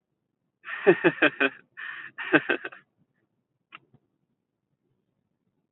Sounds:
Laughter